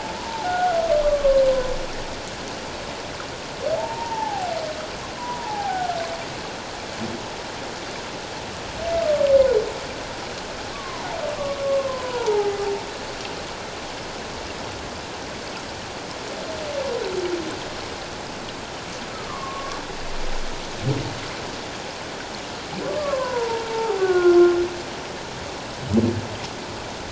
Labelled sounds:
1.0	1.7	humpback whale, 0.97 to 1.2 kHz
3.8	5.9	humpback whale, 0.78 to 1.1 kHz
10.7	12.6	humpback whale, 0.78 to 1.2 kHz
19.3	19.8	humpback whale, 1.0 to 1.2 kHz
22.9	24.4	humpback whale, 0.78 to 1.6 kHz

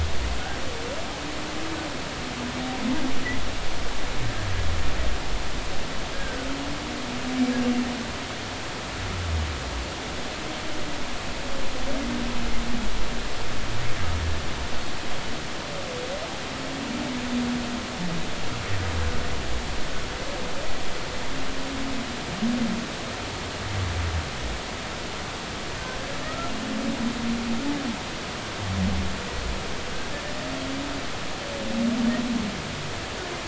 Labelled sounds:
6.1	6.5	humpback whale, 1.4 to 1.7 kHz
26.2	26.5	humpback whale, 1.2 to 1.4 kHz

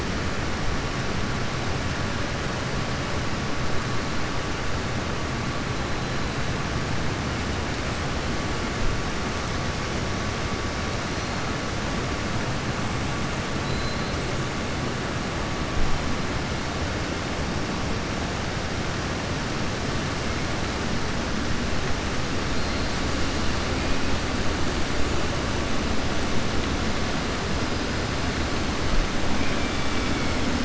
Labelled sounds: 13.6	14.1	killer whale, southern resident, 3.1 to 4.3 kHz
29.3	30.3	killer whale, southern resident, 1.4 to 3.3 kHz

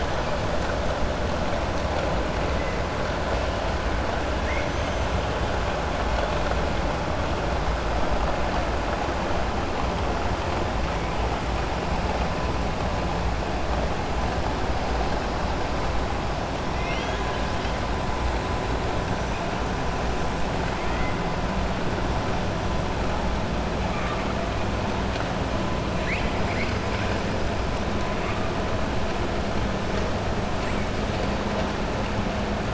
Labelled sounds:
4.5	5.1	killer whale, 5.7 to 6.5 kHz
16.7	17.5	killer whale, 1.6 to 3.9 kHz

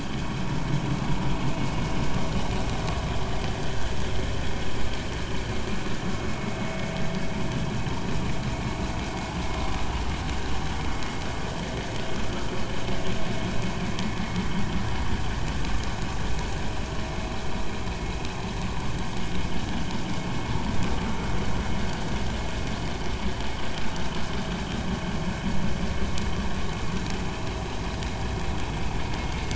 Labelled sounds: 3.7	3.9	vessel noise, 1.5 to 1.9 kHz
6.3	6.6	vessel noise, 2.1 to 2.3 kHz

